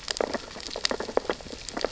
{"label": "biophony, sea urchins (Echinidae)", "recorder": "SoundTrap 600 or HydroMoth"}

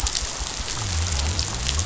{"label": "biophony", "recorder": "SoundTrap 500"}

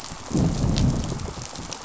{"label": "biophony, growl", "recorder": "SoundTrap 500"}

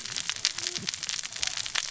{"label": "biophony, cascading saw", "recorder": "SoundTrap 600 or HydroMoth"}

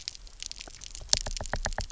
{"label": "biophony, knock", "recorder": "SoundTrap 300"}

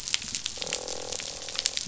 {"label": "biophony, croak", "recorder": "SoundTrap 500"}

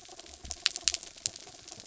{"label": "anthrophony, mechanical", "recorder": "SoundTrap 300"}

